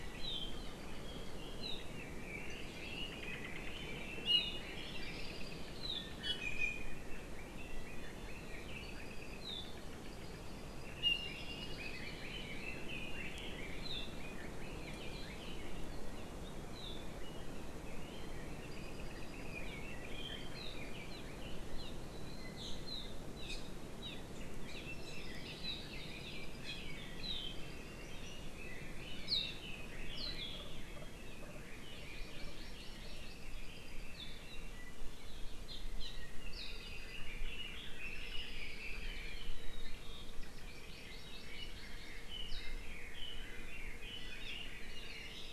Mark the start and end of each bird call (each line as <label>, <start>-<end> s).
Apapane (Himatione sanguinea), 0.5-1.5 s
Apapane (Himatione sanguinea), 2.5-3.3 s
Iiwi (Drepanis coccinea), 4.2-4.6 s
Hawaii Creeper (Loxops mana), 4.8-5.8 s
Iiwi (Drepanis coccinea), 6.2-6.9 s
Iiwi (Drepanis coccinea), 7.9-8.4 s
Apapane (Himatione sanguinea), 8.8-9.4 s
Apapane (Himatione sanguinea), 10.1-10.9 s
Iiwi (Drepanis coccinea), 11.0-11.3 s
Red-billed Leiothrix (Leiothrix lutea), 11.2-14.5 s
Hawaii Creeper (Loxops mana), 11.4-12.5 s
Apapane (Himatione sanguinea), 18.7-19.6 s
Apapane (Himatione sanguinea), 21.0-21.2 s
Apapane (Himatione sanguinea), 21.7-21.9 s
Apapane (Himatione sanguinea), 24.0-24.2 s
Hawaii Creeper (Loxops mana), 24.9-26.0 s
Red-billed Leiothrix (Leiothrix lutea), 28.2-31.4 s
Hawaii Amakihi (Chlorodrepanis virens), 31.9-33.5 s
Apapane (Himatione sanguinea), 33.4-34.1 s
Apapane (Himatione sanguinea), 35.6-36.1 s
Red-billed Leiothrix (Leiothrix lutea), 36.3-39.5 s
Apapane (Himatione sanguinea), 36.6-37.2 s
Hawaii Creeper (Loxops mana), 38.0-39.5 s
Hawaii Amakihi (Chlorodrepanis virens), 40.6-42.1 s
Red-billed Leiothrix (Leiothrix lutea), 42.3-45.5 s
Iiwi (Drepanis coccinea), 44.1-44.4 s